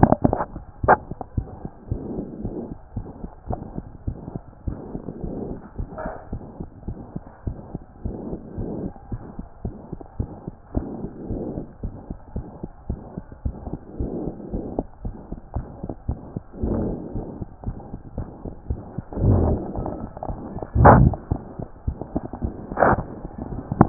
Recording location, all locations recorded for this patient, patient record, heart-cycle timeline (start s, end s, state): mitral valve (MV)
aortic valve (AV)+pulmonary valve (PV)+tricuspid valve (TV)+mitral valve (MV)
#Age: Child
#Sex: Male
#Height: 129.0 cm
#Weight: 20.0 kg
#Pregnancy status: False
#Murmur: Present
#Murmur locations: aortic valve (AV)+mitral valve (MV)+pulmonary valve (PV)+tricuspid valve (TV)
#Most audible location: tricuspid valve (TV)
#Systolic murmur timing: Holosystolic
#Systolic murmur shape: Plateau
#Systolic murmur grading: III/VI or higher
#Systolic murmur pitch: High
#Systolic murmur quality: Harsh
#Diastolic murmur timing: nan
#Diastolic murmur shape: nan
#Diastolic murmur grading: nan
#Diastolic murmur pitch: nan
#Diastolic murmur quality: nan
#Outcome: Abnormal
#Campaign: 2014 screening campaign
0.00	8.99	unannotated
8.99	9.12	diastole
9.12	9.20	S1
9.20	9.36	systole
9.36	9.46	S2
9.46	9.64	diastole
9.64	9.74	S1
9.74	9.90	systole
9.90	10.00	S2
10.00	10.18	diastole
10.18	10.30	S1
10.30	10.46	systole
10.46	10.54	S2
10.54	10.74	diastole
10.74	10.86	S1
10.86	11.02	systole
11.02	11.10	S2
11.10	11.30	diastole
11.30	11.42	S1
11.42	11.56	systole
11.56	11.64	S2
11.64	11.82	diastole
11.82	11.94	S1
11.94	12.08	systole
12.08	12.18	S2
12.18	12.36	diastole
12.36	12.46	S1
12.46	12.60	systole
12.60	12.70	S2
12.70	12.88	diastole
12.88	13.00	S1
13.00	13.14	systole
13.14	13.24	S2
13.24	13.44	diastole
13.44	13.56	S1
13.56	13.70	systole
13.70	13.78	S2
13.78	13.98	diastole
13.98	14.10	S1
14.10	14.24	systole
14.24	14.32	S2
14.32	14.52	diastole
14.52	14.64	S1
14.64	14.76	systole
14.76	14.86	S2
14.86	15.04	diastole
15.04	15.14	S1
15.14	15.28	systole
15.28	15.40	S2
15.40	15.56	diastole
15.56	15.66	S1
15.66	15.80	systole
15.80	15.92	S2
15.92	16.08	diastole
16.08	16.18	S1
16.18	16.32	systole
16.32	16.42	S2
16.42	16.62	diastole
16.62	23.89	unannotated